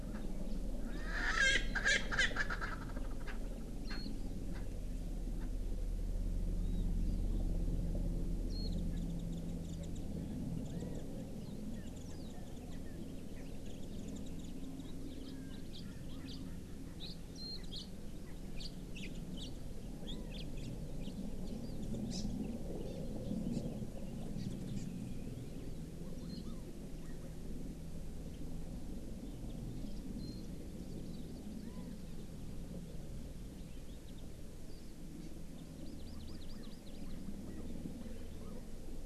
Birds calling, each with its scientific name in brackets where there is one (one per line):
Erckel's Francolin (Pternistis erckelii)
Warbling White-eye (Zosterops japonicus)
House Finch (Haemorhous mexicanus)
Hawaii Amakihi (Chlorodrepanis virens)